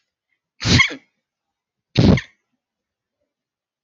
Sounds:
Sneeze